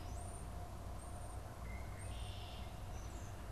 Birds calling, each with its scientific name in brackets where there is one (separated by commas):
Red-winged Blackbird (Agelaius phoeniceus), European Starling (Sturnus vulgaris)